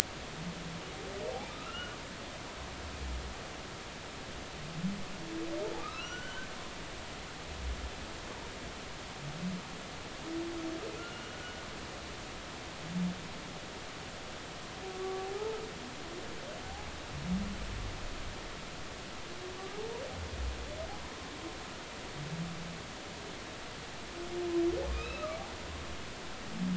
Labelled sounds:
1.5	2.0	humpback whale, 1.2 to 3.0 kHz
5.8	6.5	humpback whale, 1.1 to 6.1 kHz
11.0	12.4	humpback whale, 1.3 to 3.0 kHz
14.9	15.6	humpback whale, 0.80 to 1.2 kHz
24.9	26.2	humpback whale, 2.4 to 4.0 kHz

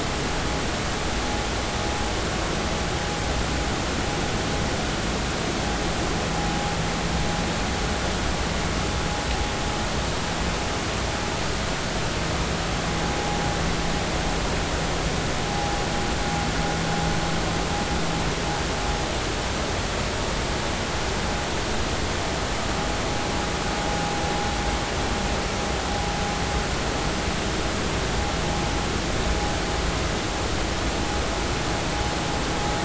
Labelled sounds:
15.5	15.8	vessel noise, 0.80 to 0.86 kHz

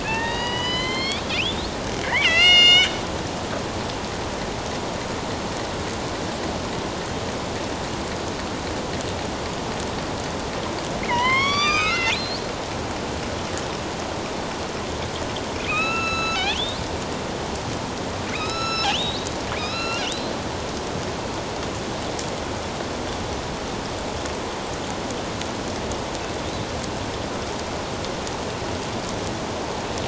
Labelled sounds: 0.0	2.9	killer whale, northern resident, A clan, AB subclan, 0.81 to 8.0 kHz
11.0	12.4	killer whale, northern resident, A clan, AB subclan, 0.91 to 7.7 kHz
15.7	16.6	killer whale, northern resident, A clan, AB subclan, 1.2 to 6.8 kHz
18.3	19.3	killer whale, northern resident, A clan, AB subclan, 1.2 to 6.8 kHz
19.6	20.1	killer whale, northern resident, A clan, AB subclan, 1.2 to 4.2 kHz

